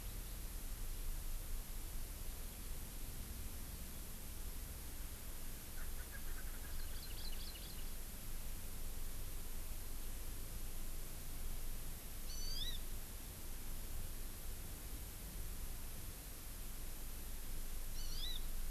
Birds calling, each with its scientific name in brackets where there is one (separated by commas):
Erckel's Francolin (Pternistis erckelii), Hawaii Amakihi (Chlorodrepanis virens)